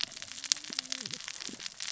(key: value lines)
label: biophony, cascading saw
recorder: SoundTrap 600 or HydroMoth